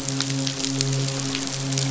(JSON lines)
{"label": "biophony, midshipman", "recorder": "SoundTrap 500"}